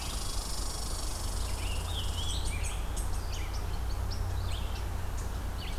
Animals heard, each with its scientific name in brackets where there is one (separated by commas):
Scarlet Tanager (Piranga olivacea), Red Squirrel (Tamiasciurus hudsonicus), Red-eyed Vireo (Vireo olivaceus)